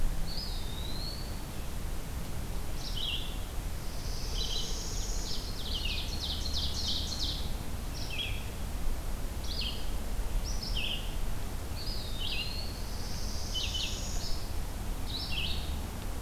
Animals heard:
Ovenbird (Seiurus aurocapilla), Eastern Wood-Pewee (Contopus virens), Northern Parula (Setophaga americana), Red-eyed Vireo (Vireo olivaceus)

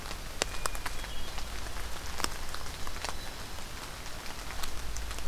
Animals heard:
Hermit Thrush (Catharus guttatus)

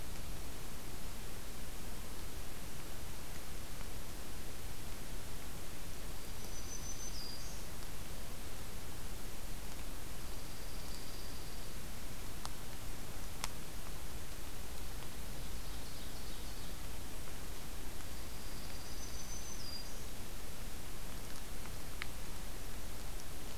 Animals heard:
Black-throated Green Warbler (Setophaga virens), Ovenbird (Seiurus aurocapilla), Dark-eyed Junco (Junco hyemalis)

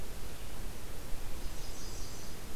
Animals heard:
American Redstart (Setophaga ruticilla)

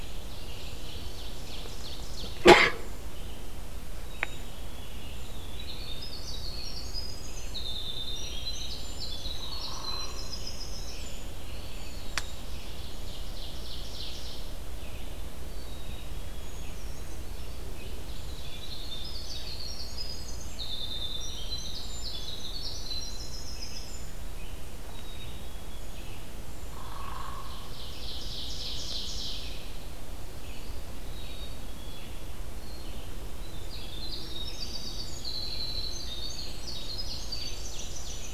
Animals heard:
Ovenbird (Seiurus aurocapilla), Eastern Wood-Pewee (Contopus virens), Brown Creeper (Certhia americana), Winter Wren (Troglodytes hiemalis), Red-eyed Vireo (Vireo olivaceus), Hairy Woodpecker (Dryobates villosus), Black-capped Chickadee (Poecile atricapillus)

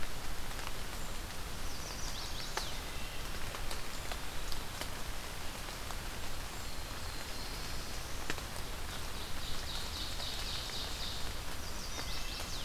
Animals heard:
Black-throated Blue Warbler (Setophaga caerulescens), Chestnut-sided Warbler (Setophaga pensylvanica), Eastern Wood-Pewee (Contopus virens), Ovenbird (Seiurus aurocapilla), Wood Thrush (Hylocichla mustelina)

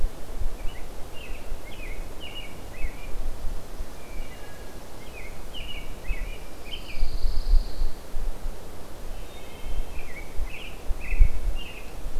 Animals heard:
American Robin (Turdus migratorius), Pine Warbler (Setophaga pinus), Wood Thrush (Hylocichla mustelina)

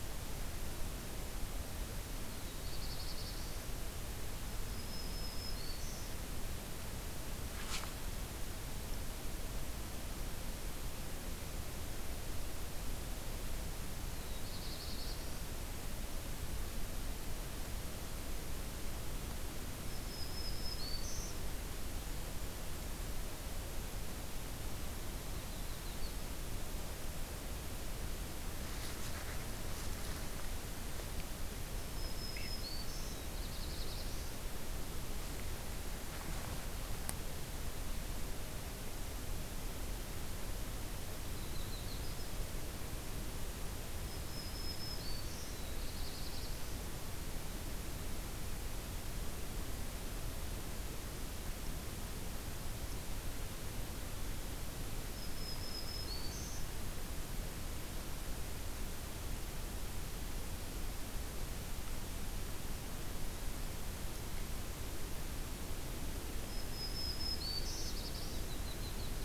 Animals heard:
Black-throated Green Warbler (Setophaga virens), Cedar Waxwing (Bombycilla cedrorum), Black-throated Blue Warbler (Setophaga caerulescens), Yellow-rumped Warbler (Setophaga coronata)

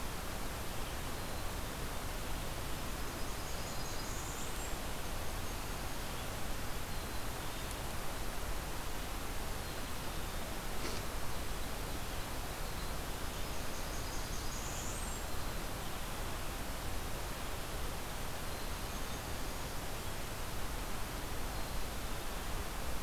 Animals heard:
Black-capped Chickadee (Poecile atricapillus), Blackburnian Warbler (Setophaga fusca)

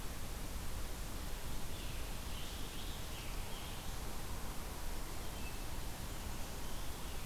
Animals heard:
Scarlet Tanager (Piranga olivacea)

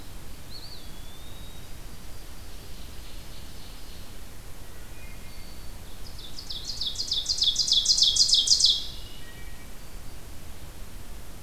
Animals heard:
Wood Thrush (Hylocichla mustelina), Ovenbird (Seiurus aurocapilla), Eastern Wood-Pewee (Contopus virens)

